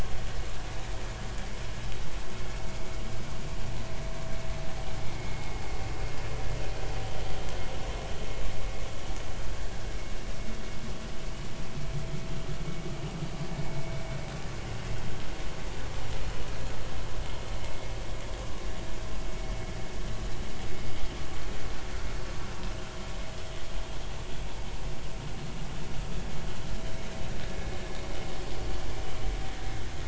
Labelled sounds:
5.1	5.6	vessel noise, 2.0 to 2.2 kHz

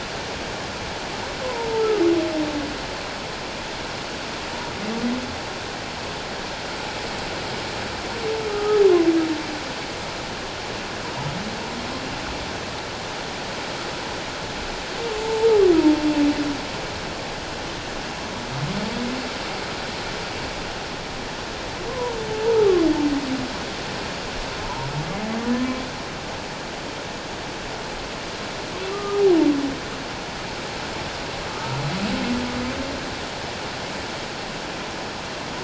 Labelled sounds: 1.4	1.7	humpback whale, 0.88 to 1.1 kHz
8.5	8.8	humpback whale, 1.2 to 1.3 kHz
15.2	15.5	humpback whale, 0.84 to 0.97 kHz
21.9	22.8	humpback whale, 0.84 to 1.4 kHz
24.6	24.9	humpback whale, 0.81 to 1.1 kHz
28.9	29.2	humpback whale, 1.1 to 1.3 kHz
31.5	31.8	humpback whale, 1.2 to 1.4 kHz

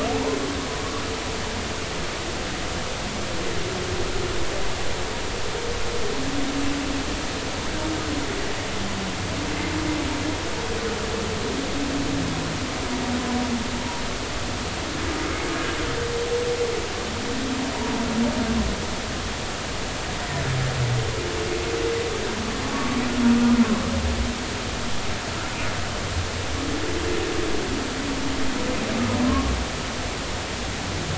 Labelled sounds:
22.7	23.0	humpback whale, 1.1 to 1.3 kHz
29.2	29.5	humpback whale, 0.99 to 1.2 kHz

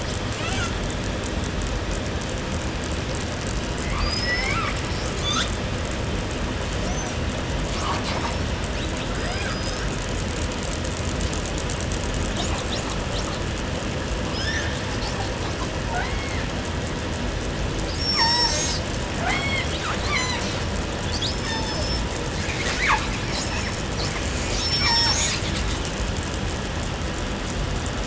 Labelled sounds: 0.0	0.9	killer whale, southern resident, call S18, 0.30 to 8.0 kHz
3.6	5.8	killer whale, southern resident, call S19, 0.49 to 8.0 kHz
6.7	7.2	killer whale, 5.1 to 6.8 kHz
7.6	8.6	killer whale, 0.30 to 7.3 kHz
8.7	9.6	killer whale, southern resident, call S18, 0.25 to 8.0 kHz
9.1	9.9	killer whale, southern resident, call S19, 0.21 to 8.0 kHz
12.2	13.6	killer whale, southern resident, call S18, 0.25 to 8.0 kHz
14.0	15.7	killer whale, 0.53 to 8.0 kHz
15.6	16.5	killer whale, southern resident, J pod, call S44, 0.19 to 8.0 kHz
17.8	18.9	killer whale, southern resident, call S36, 0.38 to 8.0 kHz
19.1	19.9	killer whale, southern resident, J pod, call S44, 0.19 to 8.0 kHz
19.8	22.1	killer whale, southern resident, call S36, 0.23 to 8.0 kHz
22.3	24.8	killer whale, southern resident, call S10, 0.72 to 8.0 kHz
23.2	23.9	killer whale, southern resident, call S36, 1.0 to 5.7 kHz
24.5	25.7	killer whale, southern resident, call S36, 0.57 to 8.0 kHz

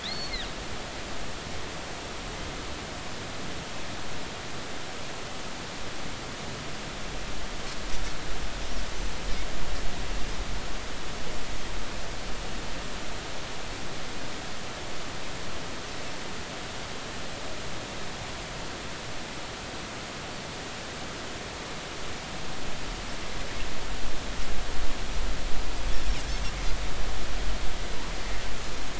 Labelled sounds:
0.0	0.5	Pacific white-sided dolphin, 3.2 to 4.5 kHz

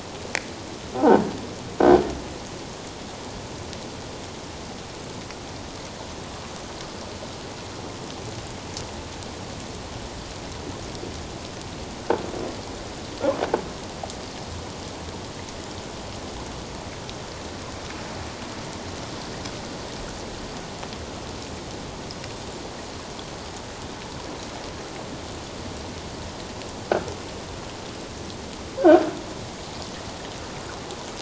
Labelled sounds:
28.8	29.1	croaking sound likely from a nearby submerged object, 1.4 to 1.7 kHz

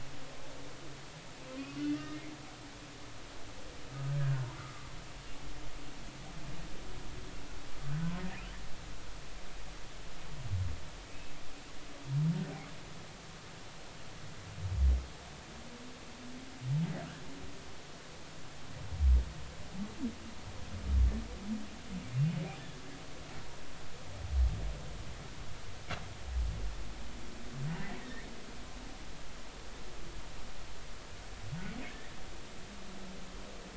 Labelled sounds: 1.8	2.3	humpback whale, 1.8 to 2.8 kHz
4.5	4.9	humpback whale, 1.0 to 1.5 kHz
28.0	28.3	humpback whale, 1.7 to 2.0 kHz

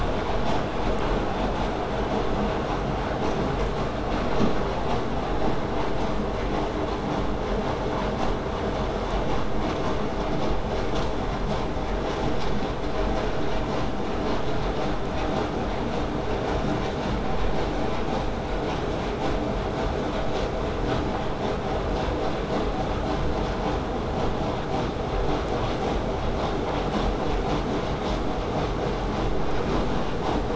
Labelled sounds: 19.2	24.2	vessel noise, 0 to 8.0 kHz

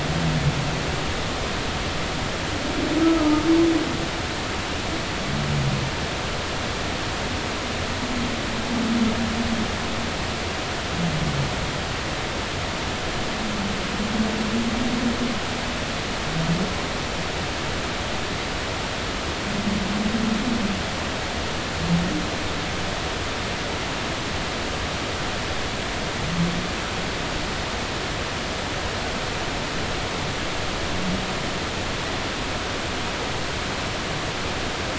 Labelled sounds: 3.0	3.4	humpback whale, 1.2 to 1.3 kHz

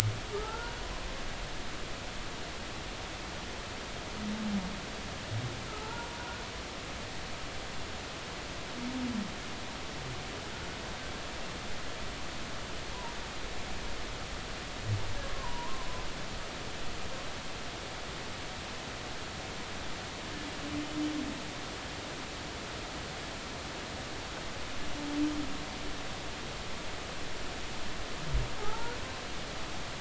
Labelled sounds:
0.3	0.8	humpback whale, 0.80 to 1.5 kHz
5.7	6.1	humpback whale, 0.83 to 1.5 kHz
15.2	15.9	humpback whale, 0.86 to 1.1 kHz
28.6	28.9	humpback whale, 0.80 to 0.99 kHz

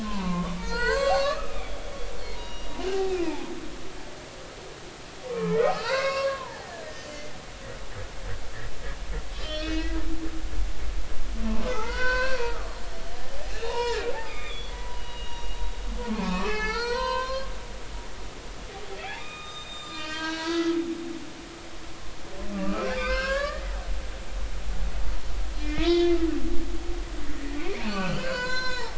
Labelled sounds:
0.0	1.8	humpback whale, 0.86 to 7.6 kHz
2.3	3.5	humpback whale, 0.80 to 5.8 kHz
5.3	7.3	humpback whale, 0.80 to 5.0 kHz
9.3	10.0	humpback whale, 1.5 to 5.6 kHz
11.7	15.6	humpback whale, 0.80 to 5.7 kHz
16.1	17.5	humpback whale, 0.80 to 5.8 kHz
19.2	20.8	humpback whale, 0.93 to 7.4 kHz
22.5	23.7	humpback whale, 1.0 to 5.5 kHz
25.6	26.1	humpback whale, 1.2 to 4.9 kHz
27.3	28.9	humpback whale, 0.80 to 6.7 kHz

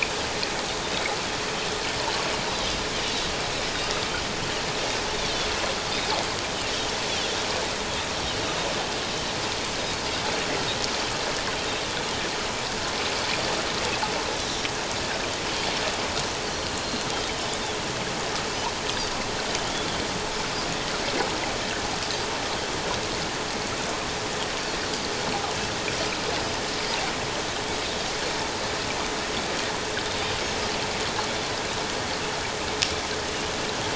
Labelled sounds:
16.5	17.1	Pacific white-sided dolphin, 4.1 to 4.4 kHz

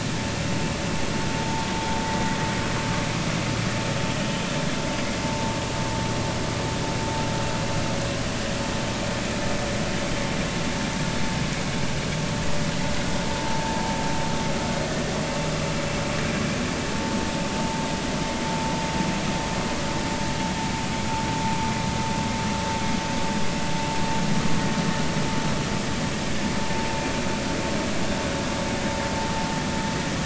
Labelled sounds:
13.4	13.8	vessel noise, 0.80 to 1.0 kHz

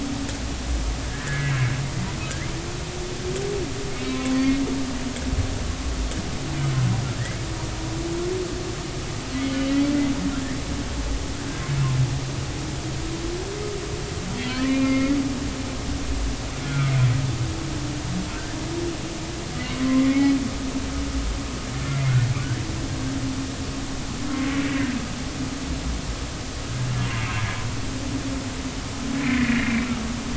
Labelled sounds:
1.1	1.6	humpback whale, 1.6 to 2.3 kHz
3.9	4.6	humpback whale, 0.99 to 4.6 kHz
14.5	15.1	humpback whale, 1.3 to 3.0 kHz
16.6	16.9	humpback whale, 1.2 to 1.6 kHz
19.8	20.4	humpback whale, 0.99 to 2.3 kHz
21.9	22.2	humpback whale, 2.0 to 2.2 kHz
24.6	24.9	humpback whale, 1.5 to 2.8 kHz
29.2	29.8	humpback whale, 1.6 to 2.5 kHz

